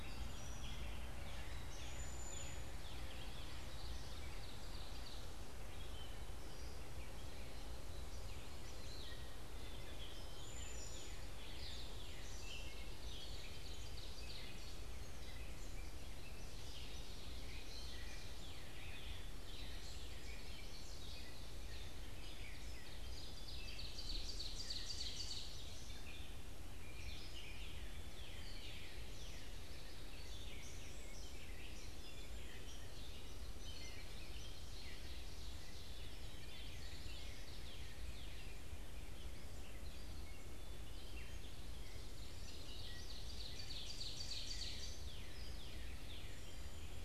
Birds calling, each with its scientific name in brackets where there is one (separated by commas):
Ovenbird (Seiurus aurocapilla), Gray Catbird (Dumetella carolinensis), Northern Cardinal (Cardinalis cardinalis), Cedar Waxwing (Bombycilla cedrorum)